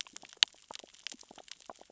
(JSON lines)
{"label": "biophony, sea urchins (Echinidae)", "recorder": "SoundTrap 600 or HydroMoth"}